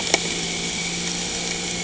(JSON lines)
{"label": "anthrophony, boat engine", "recorder": "HydroMoth"}